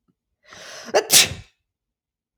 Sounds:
Sneeze